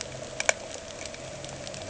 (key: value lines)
label: anthrophony, boat engine
recorder: HydroMoth